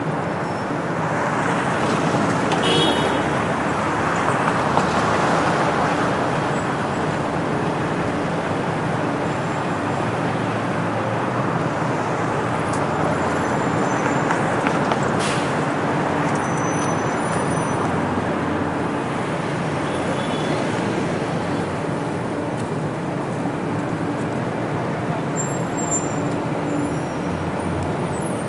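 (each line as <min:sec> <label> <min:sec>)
0:00.0 Noisy city sounds with cars, horns, and a police siren. 0:28.4
0:02.6 A car horn sounds. 0:03.7
0:14.0 A bus brakes and opens its door. 0:15.9
0:14.6 The sound of someone running in heels. 0:16.2
0:17.0 A brake sounds again. 0:18.7
0:25.9 A brake sounds again. 0:28.5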